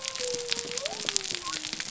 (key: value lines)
label: biophony
recorder: SoundTrap 300